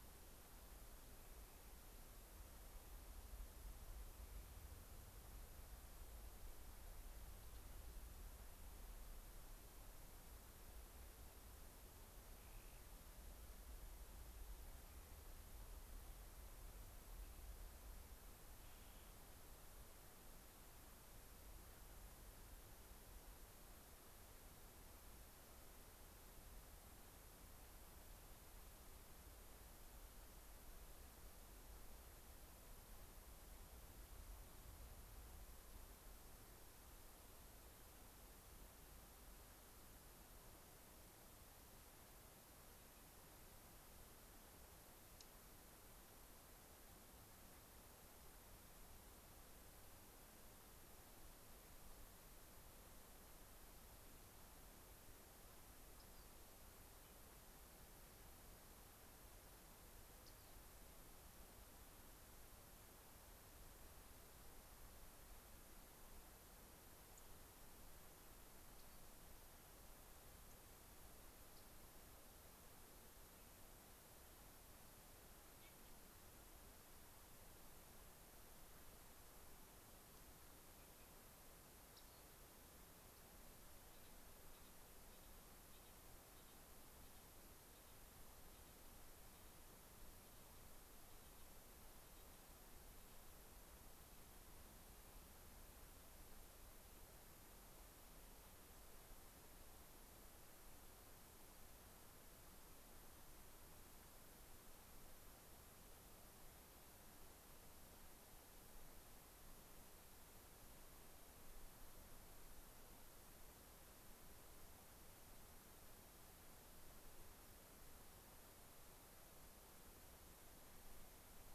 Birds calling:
unidentified bird, Clark's Nutcracker (Nucifraga columbiana), Rock Wren (Salpinctes obsoletus), Dark-eyed Junco (Junco hyemalis)

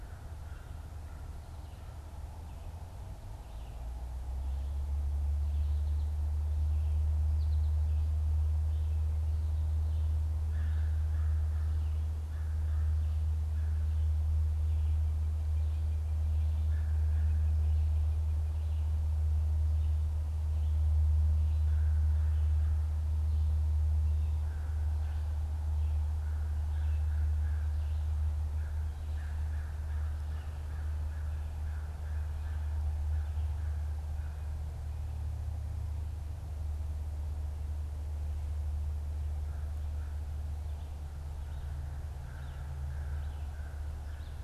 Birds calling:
American Goldfinch (Spinus tristis), American Crow (Corvus brachyrhynchos)

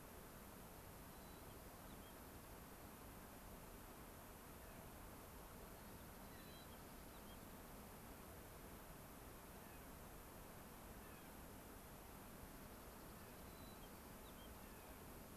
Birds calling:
Clark's Nutcracker (Nucifraga columbiana), Rock Wren (Salpinctes obsoletus), White-crowned Sparrow (Zonotrichia leucophrys), Dark-eyed Junco (Junco hyemalis)

